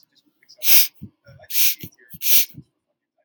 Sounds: Sniff